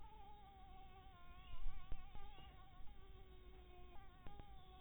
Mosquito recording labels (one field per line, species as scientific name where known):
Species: Anopheles maculatus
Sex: female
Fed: blood-fed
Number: one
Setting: cup